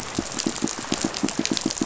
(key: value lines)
label: biophony, pulse
recorder: SoundTrap 500